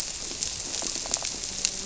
{"label": "biophony", "recorder": "SoundTrap 300"}
{"label": "biophony, grouper", "recorder": "SoundTrap 300"}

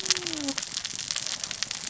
{"label": "biophony, cascading saw", "recorder": "SoundTrap 600 or HydroMoth"}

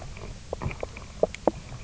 {"label": "biophony, knock croak", "recorder": "SoundTrap 300"}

